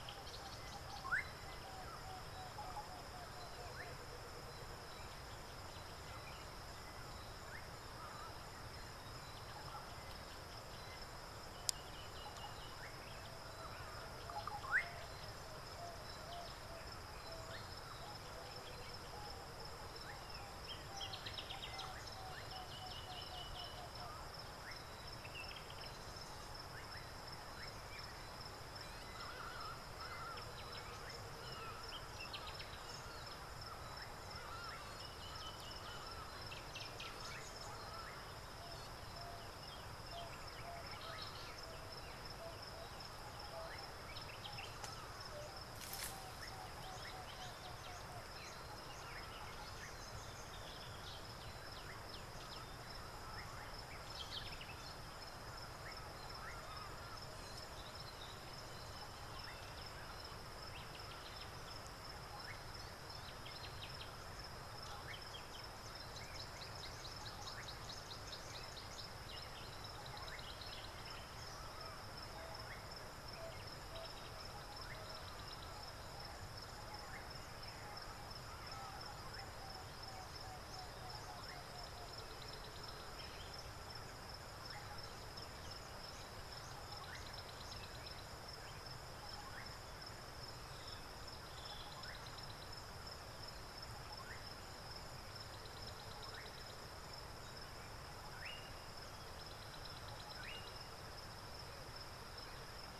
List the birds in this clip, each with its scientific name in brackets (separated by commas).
Emerald-spotted Wood-Dove (Turtur chalcospilos), Slate-colored Boubou (Laniarius funebris), African Bare-eyed Thrush (Turdus tephronotus), Tawny-flanked Prinia (Prinia subflava)